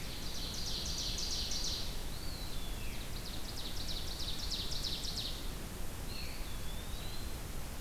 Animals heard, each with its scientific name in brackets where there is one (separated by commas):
Veery (Catharus fuscescens), Ovenbird (Seiurus aurocapilla), Eastern Wood-Pewee (Contopus virens)